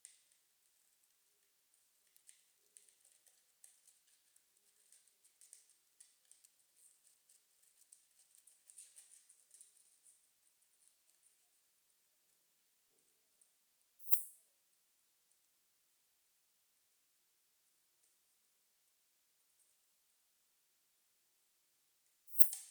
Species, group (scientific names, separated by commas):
Poecilimon affinis, Orthoptera